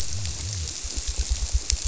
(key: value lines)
label: biophony
recorder: SoundTrap 300